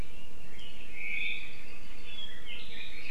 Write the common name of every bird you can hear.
Apapane, Red-billed Leiothrix